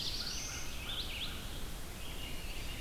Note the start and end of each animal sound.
0.0s-0.8s: Black-throated Blue Warbler (Setophaga caerulescens)
0.0s-2.8s: Red-eyed Vireo (Vireo olivaceus)
0.0s-1.8s: American Crow (Corvus brachyrhynchos)

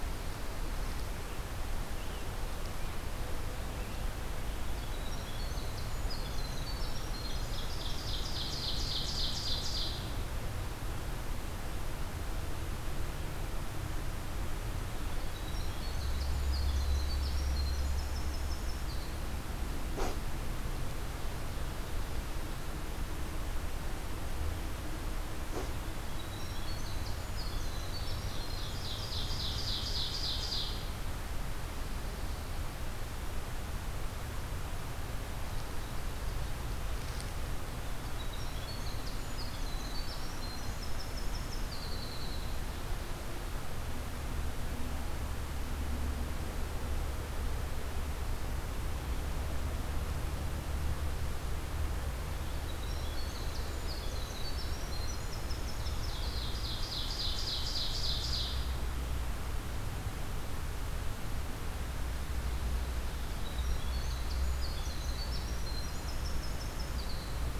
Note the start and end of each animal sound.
4.4s-8.4s: Winter Wren (Troglodytes hiemalis)
7.0s-10.1s: Ovenbird (Seiurus aurocapilla)
14.9s-19.2s: Winter Wren (Troglodytes hiemalis)
25.8s-29.7s: Winter Wren (Troglodytes hiemalis)
27.7s-30.9s: Ovenbird (Seiurus aurocapilla)
38.1s-42.7s: Winter Wren (Troglodytes hiemalis)
52.4s-56.5s: Winter Wren (Troglodytes hiemalis)
55.7s-58.7s: Ovenbird (Seiurus aurocapilla)
63.2s-67.4s: Winter Wren (Troglodytes hiemalis)

